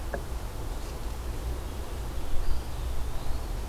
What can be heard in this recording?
Eastern Wood-Pewee